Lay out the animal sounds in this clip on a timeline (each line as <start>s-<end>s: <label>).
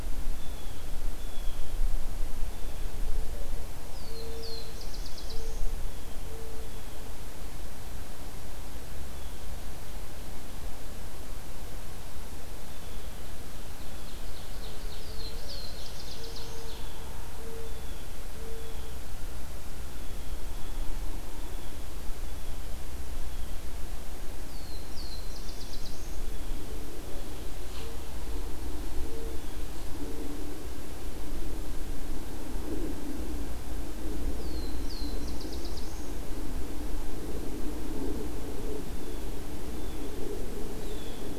0.3s-1.7s: Blue Jay (Cyanocitta cristata)
2.3s-2.9s: Blue Jay (Cyanocitta cristata)
3.8s-5.8s: Black-throated Blue Warbler (Setophaga caerulescens)
5.5s-7.3s: Blue Jay (Cyanocitta cristata)
12.4s-13.3s: Blue Jay (Cyanocitta cristata)
13.8s-15.4s: Ovenbird (Seiurus aurocapilla)
14.9s-16.8s: Black-throated Blue Warbler (Setophaga caerulescens)
17.6s-19.2s: Blue Jay (Cyanocitta cristata)
19.8s-23.7s: Blue Jay (Cyanocitta cristata)
24.4s-26.2s: Black-throated Blue Warbler (Setophaga caerulescens)
26.1s-27.4s: Blue Jay (Cyanocitta cristata)
29.2s-29.8s: Blue Jay (Cyanocitta cristata)
34.2s-36.2s: Black-throated Blue Warbler (Setophaga caerulescens)
38.7s-41.4s: Blue Jay (Cyanocitta cristata)